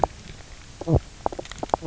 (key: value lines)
label: biophony, knock croak
recorder: SoundTrap 300